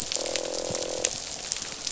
{"label": "biophony, croak", "recorder": "SoundTrap 500"}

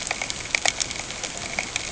{"label": "ambient", "recorder": "HydroMoth"}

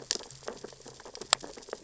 {"label": "biophony, sea urchins (Echinidae)", "recorder": "SoundTrap 600 or HydroMoth"}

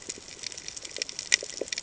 {"label": "ambient", "recorder": "HydroMoth"}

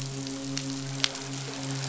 {"label": "biophony, midshipman", "recorder": "SoundTrap 500"}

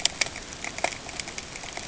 {"label": "ambient", "recorder": "HydroMoth"}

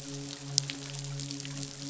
{"label": "biophony, midshipman", "recorder": "SoundTrap 500"}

